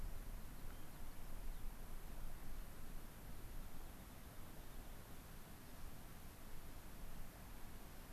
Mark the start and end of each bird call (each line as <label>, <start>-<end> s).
Rock Wren (Salpinctes obsoletus), 0.0-1.7 s
Rock Wren (Salpinctes obsoletus), 3.6-5.0 s